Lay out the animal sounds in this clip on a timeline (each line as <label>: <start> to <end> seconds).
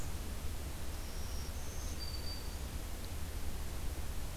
Black-throated Green Warbler (Setophaga virens): 0.9 to 2.8 seconds